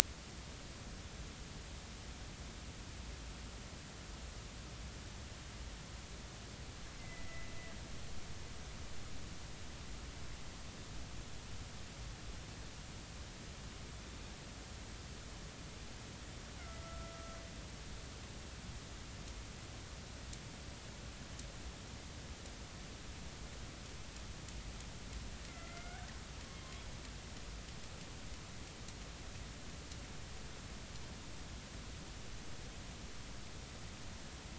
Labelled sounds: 7.0	7.5	killer whale, northern resident, A clan, AB subclan, B01 pod, call N01ii, 1.9 to 2.2 kHz
16.8	17.1	killer whale, northern resident, A clan, AB subclan, B01 pod, call N01ii, 1.3 to 1.4 kHz
25.5	26.1	killer whale, northern resident, A clan, AB subclan, B01 pod, 1.3 to 2.3 kHz

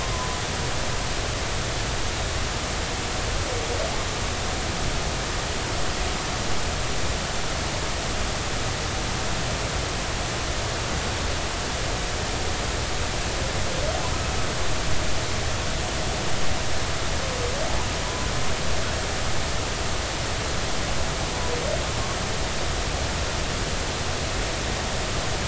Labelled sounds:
0.0	0.4	humpback whale, 0.96 to 1.1 kHz

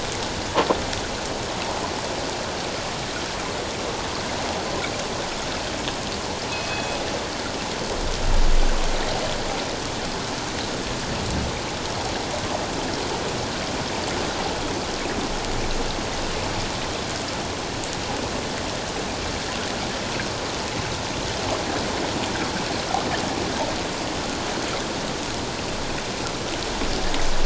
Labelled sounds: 6.5	7.0	killer whale, northern resident, G clan, call N24ii, 2.5 to 3.5 kHz

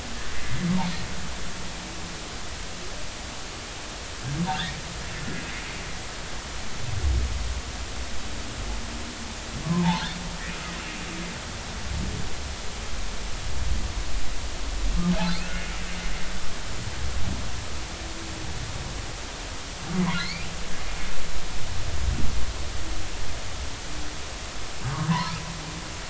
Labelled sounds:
0.3	0.6	humpback whale, 1.8 to 2.1 kHz
9.8	10.1	humpback whale, 0.80 to 1.1 kHz
20.0	20.5	humpback whale, 1.9 to 4.8 kHz
25.1	25.3	humpback whale, 0.90 to 1.1 kHz

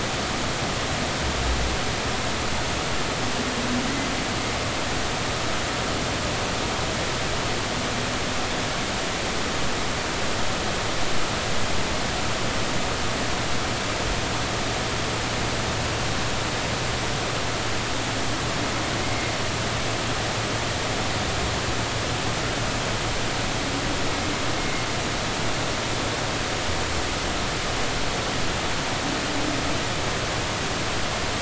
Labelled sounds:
24.6	24.8	humpback whale, 2.0 to 2.2 kHz

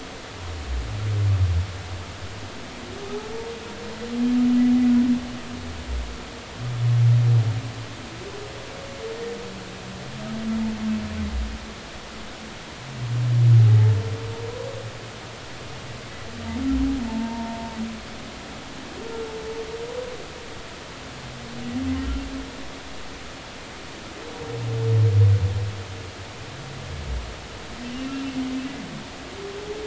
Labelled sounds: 17.1	17.7	humpback whale, 0.83 to 0.99 kHz
28.0	28.2	humpback whale, 2.6 to 2.8 kHz

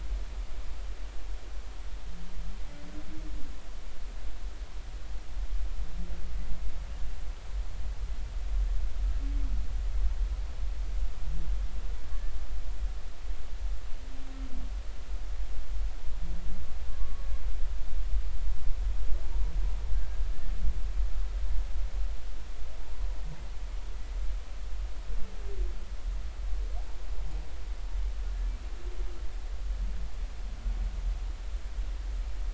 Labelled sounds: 16.9	17.2	humpback whale, 1.1 to 1.2 kHz
19.9	20.2	humpback whale, 1.5 to 1.7 kHz

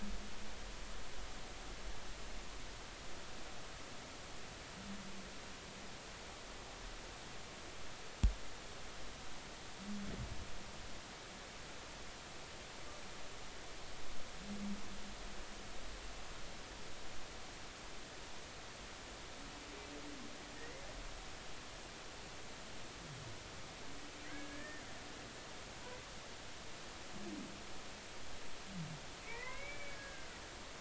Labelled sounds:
20.6	20.9	humpback whale, 1.7 to 2.2 kHz
24.3	24.8	humpback whale, 1.5 to 1.9 kHz
29.3	30.4	humpback whale, 0.90 to 2.4 kHz

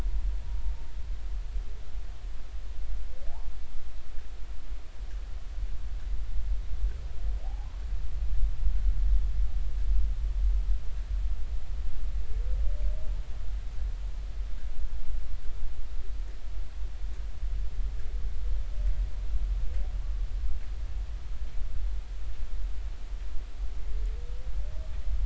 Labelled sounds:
7.4	7.7	humpback whale, 0.80 to 0.93 kHz

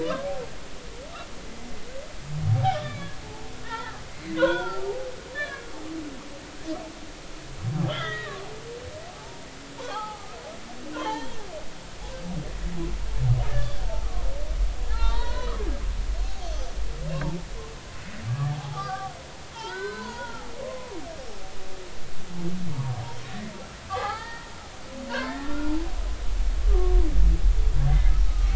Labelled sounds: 0.0	0.3	humpback whale, 0.93 to 1.4 kHz
2.4	3.1	humpback whale, 0.80 to 2.4 kHz
3.6	5.8	humpback whale, 0.80 to 4.7 kHz
6.4	6.6	humpback whale, 1.1 to 1.2 kHz
7.8	8.4	humpback whale, 1.2 to 3.7 kHz
9.1	10.4	humpback whale, 0.80 to 1.4 kHz
11.0	11.4	humpback whale, 0.80 to 3.4 kHz
13.5	14.3	humpback whale, 1.0 to 3.6 kHz
14.9	15.5	humpback whale, 0.83 to 4.4 kHz
16.4	16.8	humpback whale, 5.7 to 6.4 kHz
18.3	19.1	humpback whale, 0.80 to 1.8 kHz
19.5	20.9	humpback whale, 0.83 to 5.3 kHz
23.3	24.5	humpback whale, 0.80 to 2.1 kHz
25.1	25.7	humpback whale, 0.90 to 2.0 kHz
26.7	27.0	humpback whale, 1.1 to 1.2 kHz
27.9	28.5	humpback whale, 1.2 to 2.1 kHz

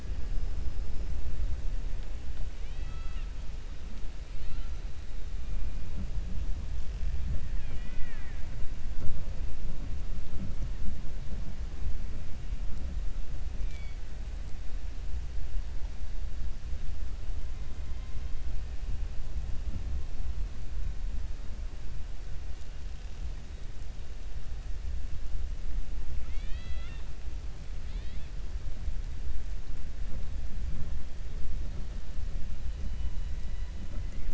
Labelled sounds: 2.5	3.3	killer whale, 1.3 to 4.6 kHz
7.4	8.5	killer whale, 0.82 to 3.5 kHz
26.2	27.1	killer whale, 0.76 to 4.7 kHz
27.8	28.3	killer whale, 1.8 to 4.6 kHz
32.9	33.7	killer whale, 2.0 to 4.0 kHz

